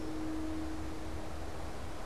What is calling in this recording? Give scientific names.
Agelaius phoeniceus